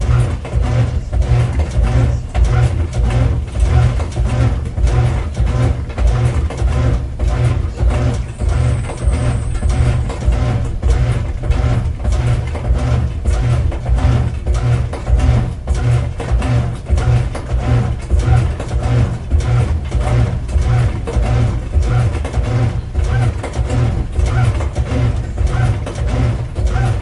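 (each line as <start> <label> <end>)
0.0 A washing machine is making loud rhythmic noise. 27.0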